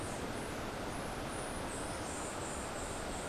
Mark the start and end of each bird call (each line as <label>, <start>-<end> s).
White-eared Ground-Sparrow (Melozone leucotis), 0.0-3.3 s